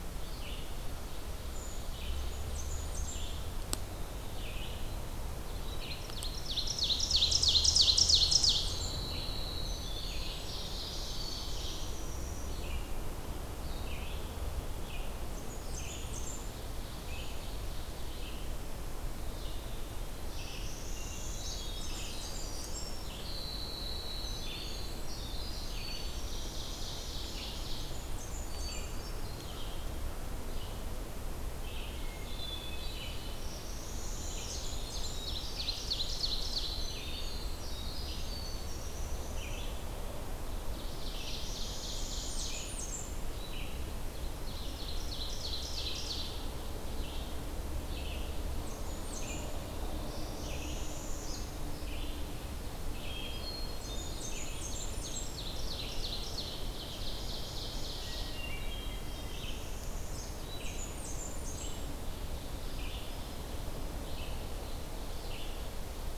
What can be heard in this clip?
Red-eyed Vireo, Brown Creeper, Blackburnian Warbler, Ovenbird, Winter Wren, Northern Parula, Hermit Thrush